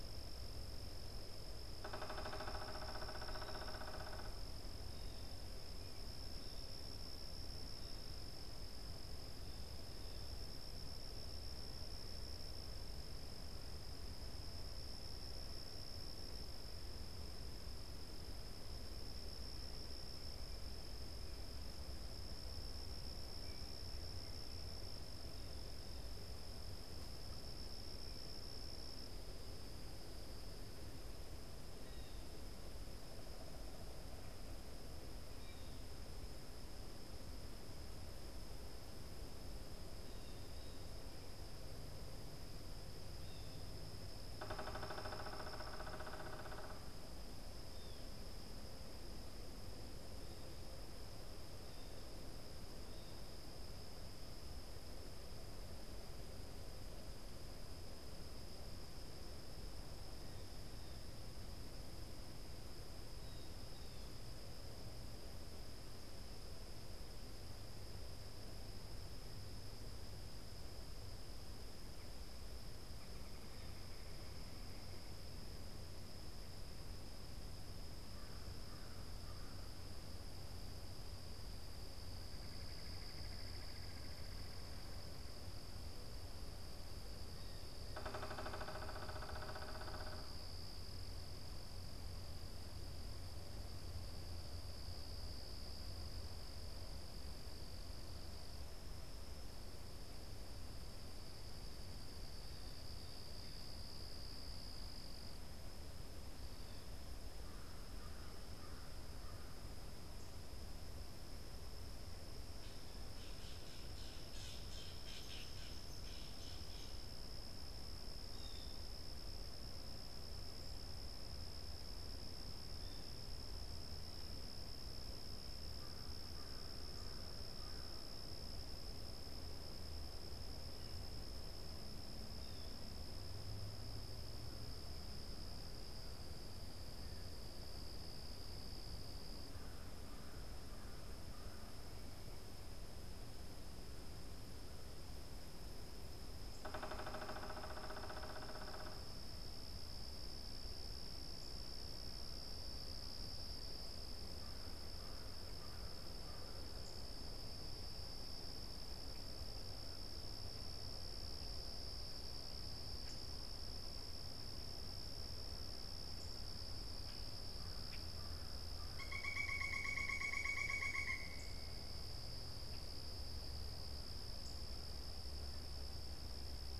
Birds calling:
unidentified bird, Red-bellied Woodpecker (Melanerpes carolinus), American Crow (Corvus brachyrhynchos), Common Grackle (Quiscalus quiscula), Blue Jay (Cyanocitta cristata), Pileated Woodpecker (Dryocopus pileatus)

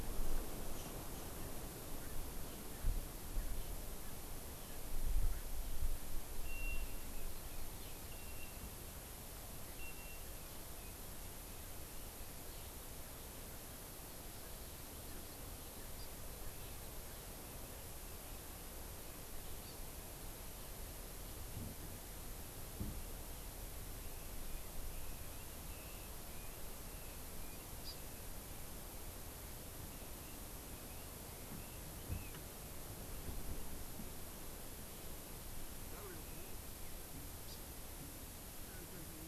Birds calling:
Hawaii Amakihi (Chlorodrepanis virens), Red-billed Leiothrix (Leiothrix lutea)

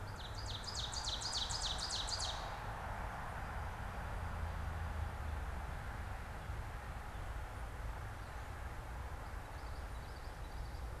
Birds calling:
Common Yellowthroat (Geothlypis trichas), Ovenbird (Seiurus aurocapilla)

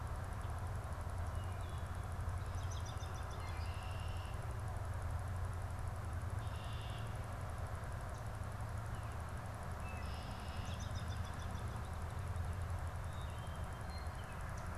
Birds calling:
American Robin (Turdus migratorius), Wood Thrush (Hylocichla mustelina), Red-winged Blackbird (Agelaius phoeniceus)

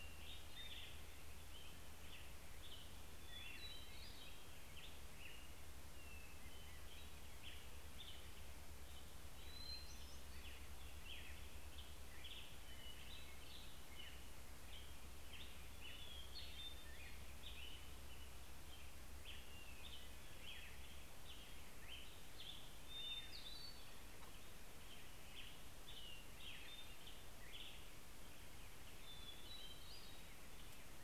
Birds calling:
Hermit Thrush (Catharus guttatus), American Robin (Turdus migratorius)

